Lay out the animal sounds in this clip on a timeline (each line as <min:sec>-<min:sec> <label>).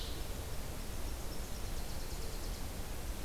0:00.5-0:02.6 Nashville Warbler (Leiothlypis ruficapilla)